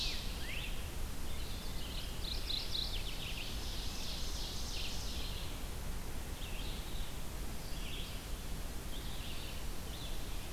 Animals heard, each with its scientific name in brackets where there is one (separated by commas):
Rose-breasted Grosbeak (Pheucticus ludovicianus), Ovenbird (Seiurus aurocapilla), Mourning Warbler (Geothlypis philadelphia), Red-eyed Vireo (Vireo olivaceus)